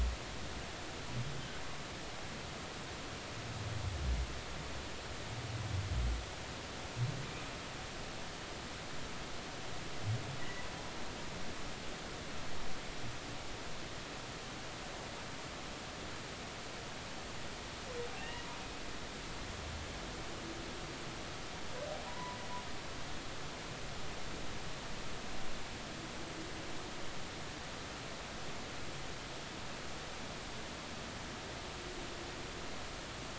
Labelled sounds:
10.4	10.7	humpback whale, 1.9 to 2.1 kHz
18.2	18.4	humpback whale, 1.8 to 2.9 kHz
22.1	22.4	humpback whale, 0.93 to 1.1 kHz

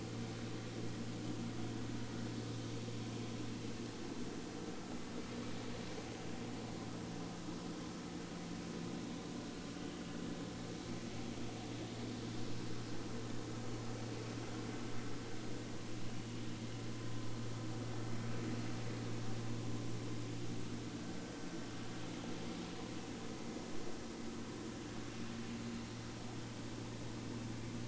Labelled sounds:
9.8	10.0	vessel noise, 3.0 to 3.2 kHz

